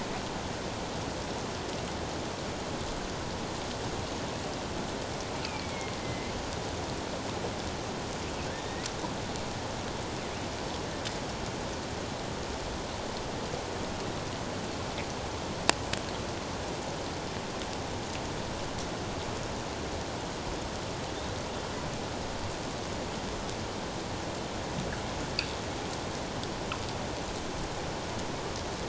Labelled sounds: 5.4	5.7	killer whale, northern resident, A clan, AA subclan, A04 pod, 2.2 to 2.7 kHz
6.0	6.3	killer whale, northern resident, A clan, AA subclan, A04 pod, 2.0 to 2.2 kHz
8.5	8.8	killer whale, northern resident, A clan, AA subclan, A04 pod, 3.5 to 3.8 kHz

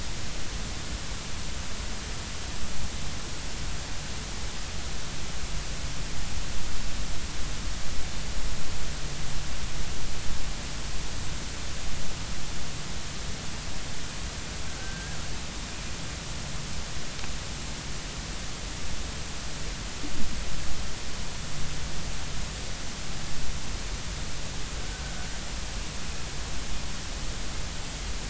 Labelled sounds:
14.7	15.2	killer whale, Bigg's (transient), 1.5 to 1.7 kHz
24.9	25.1	killer whale, Bigg's (transient), 1.4 to 1.6 kHz

